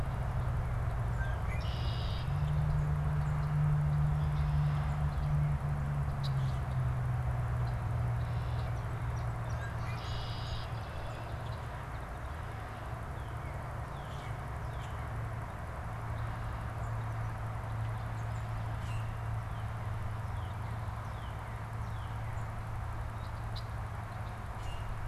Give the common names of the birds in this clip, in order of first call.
Red-winged Blackbird, Song Sparrow, Northern Cardinal, Common Grackle